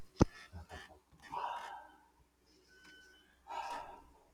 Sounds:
Sigh